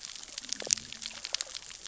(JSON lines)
{"label": "biophony, cascading saw", "recorder": "SoundTrap 600 or HydroMoth"}